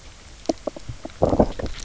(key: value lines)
label: biophony, knock croak
recorder: SoundTrap 300